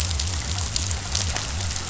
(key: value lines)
label: biophony
recorder: SoundTrap 500